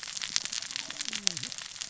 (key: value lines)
label: biophony, cascading saw
recorder: SoundTrap 600 or HydroMoth